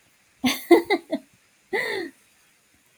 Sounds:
Laughter